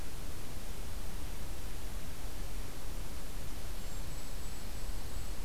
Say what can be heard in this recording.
Dark-eyed Junco, Golden-crowned Kinglet